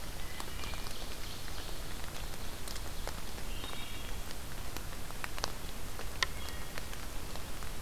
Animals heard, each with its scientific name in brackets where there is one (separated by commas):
Wood Thrush (Hylocichla mustelina), Ovenbird (Seiurus aurocapilla)